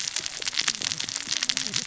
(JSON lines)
{"label": "biophony, cascading saw", "recorder": "SoundTrap 600 or HydroMoth"}